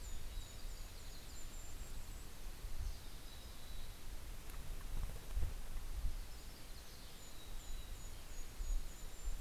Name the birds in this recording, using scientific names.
Poecile gambeli, Setophaga coronata, Regulus satrapa, Turdus migratorius